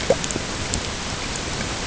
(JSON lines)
{"label": "ambient", "recorder": "HydroMoth"}